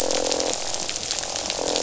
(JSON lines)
{"label": "biophony, croak", "recorder": "SoundTrap 500"}